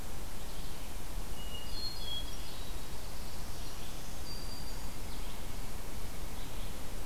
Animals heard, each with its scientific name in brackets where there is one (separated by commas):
Black-throated Blue Warbler (Setophaga caerulescens), Hermit Thrush (Catharus guttatus), Black-throated Green Warbler (Setophaga virens), Red-eyed Vireo (Vireo olivaceus)